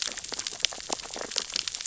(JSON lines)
{"label": "biophony, sea urchins (Echinidae)", "recorder": "SoundTrap 600 or HydroMoth"}